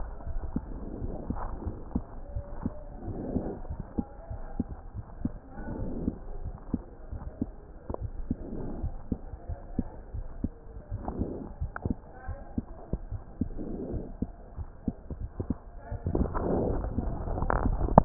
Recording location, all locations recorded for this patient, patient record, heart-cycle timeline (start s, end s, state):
aortic valve (AV)
aortic valve (AV)+pulmonary valve (PV)+tricuspid valve (TV)+mitral valve (MV)
#Age: Child
#Sex: Male
#Height: 101.0 cm
#Weight: 15.2 kg
#Pregnancy status: False
#Murmur: Absent
#Murmur locations: nan
#Most audible location: nan
#Systolic murmur timing: nan
#Systolic murmur shape: nan
#Systolic murmur grading: nan
#Systolic murmur pitch: nan
#Systolic murmur quality: nan
#Diastolic murmur timing: nan
#Diastolic murmur shape: nan
#Diastolic murmur grading: nan
#Diastolic murmur pitch: nan
#Diastolic murmur quality: nan
#Outcome: Abnormal
#Campaign: 2015 screening campaign
0.00	0.12	unannotated
0.12	0.30	diastole
0.30	0.42	S1
0.42	0.55	systole
0.55	0.64	S2
0.64	1.02	diastole
1.02	1.14	S1
1.14	1.28	systole
1.28	1.42	S2
1.42	1.64	diastole
1.64	1.78	S1
1.78	1.92	systole
1.92	2.04	S2
2.04	2.34	diastole
2.34	2.46	S1
2.46	2.64	systole
2.64	2.74	S2
2.74	3.04	diastole
3.04	3.18	S1
3.18	3.32	systole
3.32	3.46	S2
3.46	3.68	diastole
3.68	3.78	S1
3.78	3.94	systole
3.94	4.06	S2
4.06	4.30	diastole
4.30	4.42	S1
4.42	4.58	systole
4.58	4.68	S2
4.68	4.96	diastole
4.96	5.04	S1
5.04	5.22	systole
5.22	5.36	S2
5.36	5.72	diastole
5.72	5.90	S1
5.90	6.04	systole
6.04	6.16	S2
6.16	6.44	diastole
6.44	6.56	S1
6.56	6.70	systole
6.70	6.82	S2
6.82	7.10	diastole
7.10	7.20	S1
7.20	7.38	systole
7.38	7.52	S2
7.52	7.88	diastole
7.88	8.02	S1
8.02	8.28	systole
8.28	8.42	S2
8.42	8.78	diastole
8.78	8.96	S1
8.96	9.10	systole
9.10	9.20	S2
9.20	9.48	diastole
9.48	9.60	S1
9.60	9.76	systole
9.76	9.88	S2
9.88	10.16	diastole
10.16	10.26	S1
10.26	10.42	systole
10.42	10.54	S2
10.54	10.90	diastole
10.90	11.02	S1
11.02	11.18	systole
11.18	11.30	S2
11.30	11.58	diastole
11.58	11.72	S1
11.72	11.84	systole
11.84	12.00	S2
12.00	12.28	diastole
12.28	12.38	S1
12.38	12.54	systole
12.54	12.64	S2
12.64	13.10	diastole
13.10	13.20	S1
13.20	13.38	systole
13.38	13.49	S2
13.49	13.90	diastole
13.90	14.06	S1
14.06	14.20	systole
14.20	14.32	S2
14.32	14.55	diastole
14.55	14.70	S1
14.70	14.83	systole
14.83	14.95	S2
14.95	15.20	diastole
15.20	18.05	unannotated